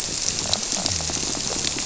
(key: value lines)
label: biophony
recorder: SoundTrap 300